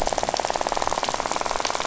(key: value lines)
label: biophony, rattle
recorder: SoundTrap 500